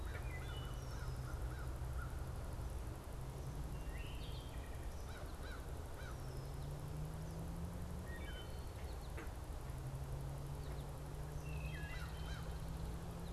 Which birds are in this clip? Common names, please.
American Crow, Wood Thrush